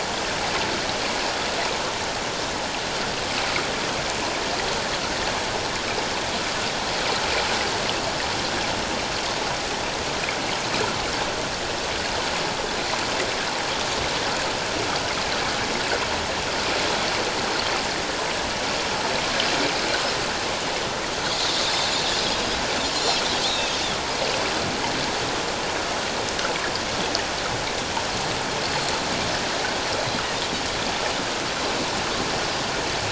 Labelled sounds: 22.1	23.7	Pacific white-sided dolphin, 3.3 to 5.1 kHz
28.6	28.9	Pacific white-sided dolphin, 4.2 to 4.6 kHz

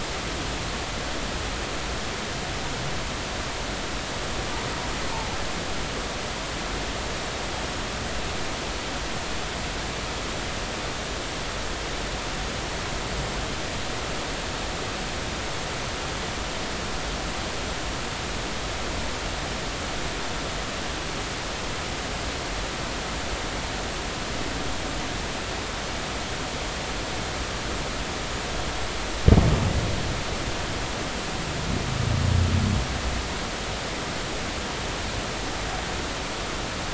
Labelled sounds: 5.1	5.4	humpback whale, 0.80 to 0.96 kHz

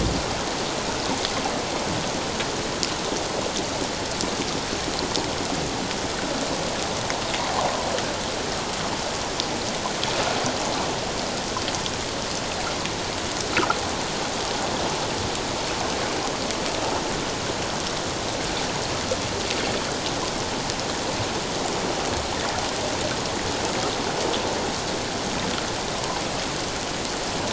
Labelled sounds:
13.5	13.8	humpback whale, 1.2 to 1.5 kHz

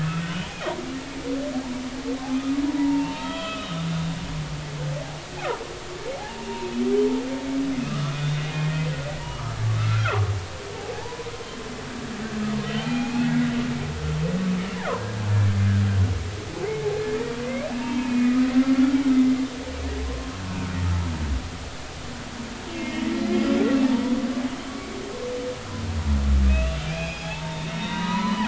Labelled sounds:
2.7	3.8	humpback whale, 0.86 to 3.4 kHz
6.2	6.5	humpback whale, 0.80 to 0.99 kHz
7.8	8.4	humpback whale, 1.1 to 3.6 kHz
9.2	11.3	humpback whale, 0.80 to 1.6 kHz
12.7	13.3	humpback whale, 0.80 to 3.4 kHz
16.6	16.9	humpback whale, 2.0 to 2.2 kHz
17.8	19.0	humpback whale, 0.86 to 2.6 kHz
20.0	20.7	humpback whale, 0.99 to 1.5 kHz
22.7	23.6	humpback whale, 2.0 to 5.1 kHz
26.5	28.4	humpback whale, 0.80 to 5.1 kHz

